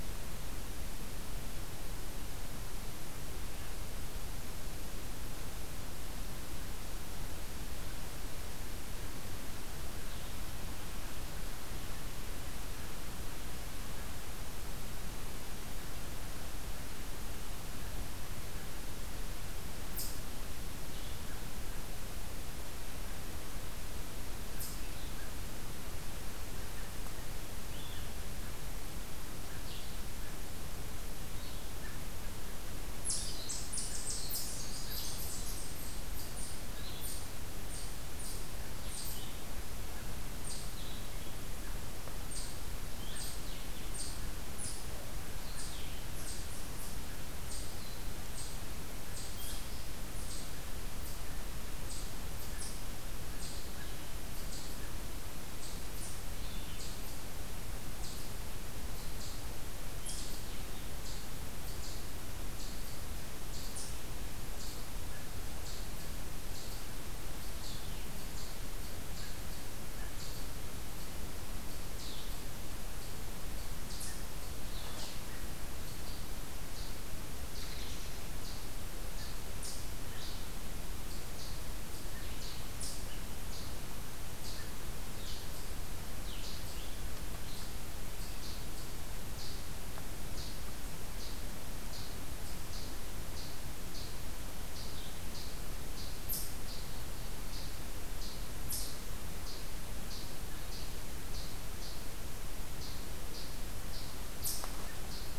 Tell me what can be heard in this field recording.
Eastern Chipmunk